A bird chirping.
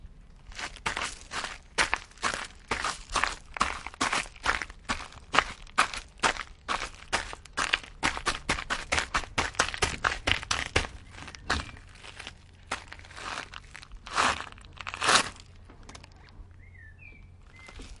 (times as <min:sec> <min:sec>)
0:16.0 0:18.0